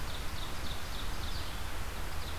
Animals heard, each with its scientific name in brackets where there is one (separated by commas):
Ovenbird (Seiurus aurocapilla), Red-eyed Vireo (Vireo olivaceus)